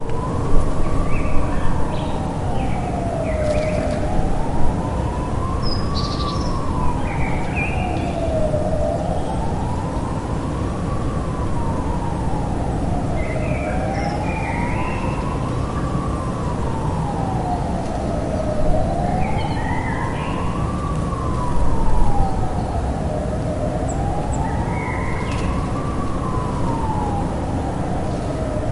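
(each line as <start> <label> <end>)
0.0 A police siren sounds in the distance. 28.7
0.0 White noise. 28.7
0.9 A bird chirps repeatedly. 4.7
5.4 A bird chirps repeatedly. 10.1
12.9 A bird chirps. 15.5
19.1 A bird chirps. 20.8
23.7 A bird chirps. 25.8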